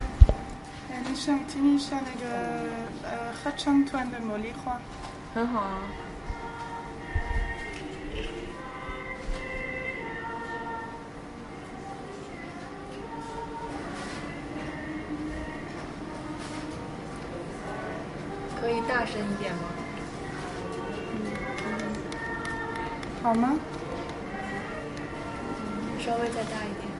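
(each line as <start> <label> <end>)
0.0 A woman is speaking. 5.9
6.0 Choir singing in the background. 27.0
18.5 A woman is speaking. 19.3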